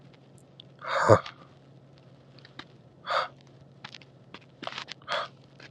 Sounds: Sigh